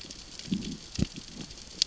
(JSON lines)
{"label": "biophony, growl", "recorder": "SoundTrap 600 or HydroMoth"}